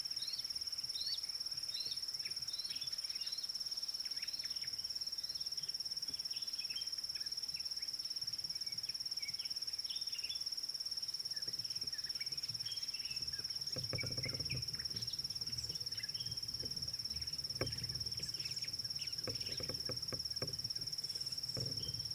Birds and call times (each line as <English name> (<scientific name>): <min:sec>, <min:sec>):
Pale White-eye (Zosterops flavilateralis): 0:01.1, 0:03.4